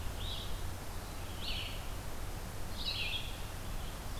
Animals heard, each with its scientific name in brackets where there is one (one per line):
Red-eyed Vireo (Vireo olivaceus)